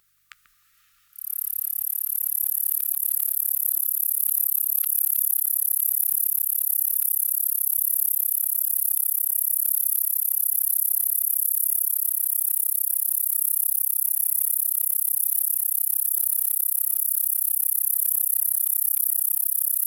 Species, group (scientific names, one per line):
Bradyporus dasypus
Orthoptera